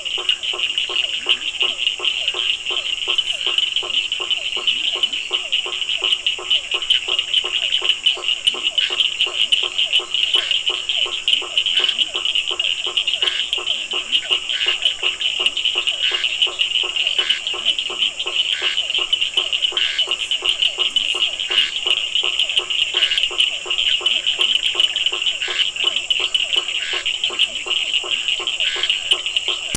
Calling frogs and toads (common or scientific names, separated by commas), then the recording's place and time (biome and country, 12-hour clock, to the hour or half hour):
blacksmith tree frog, Physalaemus cuvieri, Bischoff's tree frog, Leptodactylus latrans, Scinax perereca
Atlantic Forest, Brazil, 7:30pm